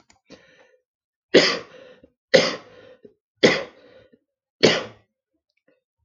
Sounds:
Cough